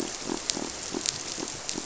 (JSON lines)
{"label": "biophony", "recorder": "SoundTrap 300"}